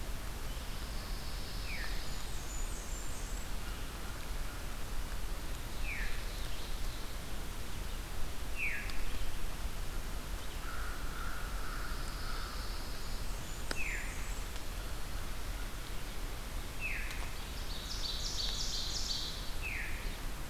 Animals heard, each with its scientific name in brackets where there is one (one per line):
Blackburnian Warbler (Setophaga fusca)
Ovenbird (Seiurus aurocapilla)
Veery (Catharus fuscescens)
Pine Warbler (Setophaga pinus)
American Crow (Corvus brachyrhynchos)